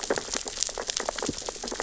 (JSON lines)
{"label": "biophony, sea urchins (Echinidae)", "recorder": "SoundTrap 600 or HydroMoth"}